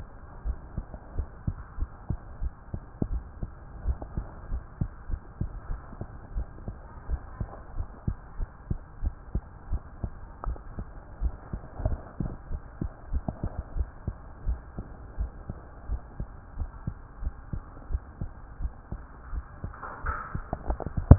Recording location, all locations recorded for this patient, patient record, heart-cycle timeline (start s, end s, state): tricuspid valve (TV)
aortic valve (AV)+pulmonary valve (PV)+tricuspid valve (TV)+mitral valve (MV)
#Age: Child
#Sex: Female
#Height: 153.0 cm
#Weight: 37.5 kg
#Pregnancy status: False
#Murmur: Absent
#Murmur locations: nan
#Most audible location: nan
#Systolic murmur timing: nan
#Systolic murmur shape: nan
#Systolic murmur grading: nan
#Systolic murmur pitch: nan
#Systolic murmur quality: nan
#Diastolic murmur timing: nan
#Diastolic murmur shape: nan
#Diastolic murmur grading: nan
#Diastolic murmur pitch: nan
#Diastolic murmur quality: nan
#Outcome: Normal
#Campaign: 2015 screening campaign
0.00	0.41	unannotated
0.41	0.58	S1
0.58	0.73	systole
0.73	0.86	S2
0.86	1.14	diastole
1.14	1.26	S1
1.26	1.43	systole
1.43	1.56	S2
1.56	1.76	diastole
1.76	1.90	S1
1.90	2.06	systole
2.06	2.18	S2
2.18	2.37	diastole
2.37	2.50	S1
2.50	2.69	systole
2.69	2.80	S2
2.80	3.10	diastole
3.10	3.24	S1
3.24	3.39	systole
3.39	3.50	S2
3.50	3.82	diastole
3.82	3.98	S1
3.98	4.14	systole
4.14	4.26	S2
4.26	4.49	diastole
4.49	4.64	S1
4.64	4.79	systole
4.79	4.90	S2
4.90	5.09	diastole
5.09	5.22	S1
5.22	5.38	systole
5.38	5.48	S2
5.48	5.67	diastole
5.67	5.82	S1
5.82	5.98	systole
5.98	6.06	S2
6.06	6.34	diastole
6.34	6.46	S1
6.46	6.64	systole
6.64	6.78	S2
6.78	7.08	diastole
7.08	7.20	S1
7.20	7.38	systole
7.38	7.48	S2
7.48	7.75	diastole
7.75	7.88	S1
7.88	8.05	systole
8.05	8.16	S2
8.16	8.36	diastole
8.36	8.48	S1
8.48	8.67	systole
8.67	8.78	S2
8.78	9.00	diastole
9.00	9.14	S1
9.14	9.31	systole
9.31	9.42	S2
9.42	9.68	diastole
9.68	9.82	S1
9.82	10.00	systole
10.00	10.14	S2
10.14	10.44	diastole
10.44	10.60	S1
10.60	10.75	systole
10.75	10.90	S2
10.90	11.18	diastole
11.18	11.36	S1
11.36	11.49	systole
11.49	11.60	S2
11.60	11.82	diastole
11.82	12.00	S1
12.00	12.18	systole
12.18	12.30	S2
12.30	12.48	diastole
12.48	12.62	S1
12.62	12.78	systole
12.78	12.90	S2
12.90	13.10	diastole
13.10	13.24	S1
13.24	21.18	unannotated